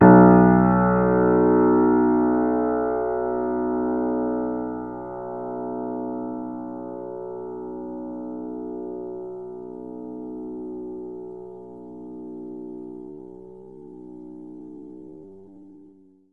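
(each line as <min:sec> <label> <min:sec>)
0:00.0 A piano playing a slightly distorted B1 key. 0:16.3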